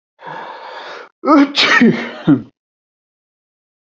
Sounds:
Sneeze